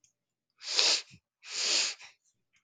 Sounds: Sniff